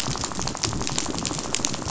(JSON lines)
{"label": "biophony, rattle", "recorder": "SoundTrap 500"}